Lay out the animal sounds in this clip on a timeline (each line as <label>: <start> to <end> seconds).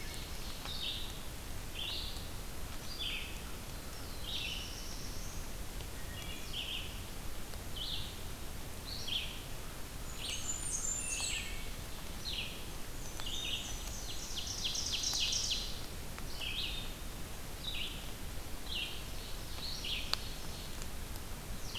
Ovenbird (Seiurus aurocapilla): 0.0 to 0.7 seconds
Red-eyed Vireo (Vireo olivaceus): 0.0 to 21.8 seconds
Black-throated Blue Warbler (Setophaga caerulescens): 3.7 to 5.7 seconds
Wood Thrush (Hylocichla mustelina): 5.7 to 6.6 seconds
Blackburnian Warbler (Setophaga fusca): 9.9 to 11.7 seconds
Wood Thrush (Hylocichla mustelina): 10.9 to 11.8 seconds
Black-and-white Warbler (Mniotilta varia): 12.6 to 14.3 seconds
Ovenbird (Seiurus aurocapilla): 13.8 to 15.9 seconds
Ovenbird (Seiurus aurocapilla): 18.7 to 20.9 seconds